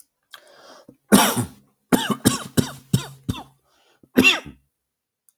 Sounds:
Cough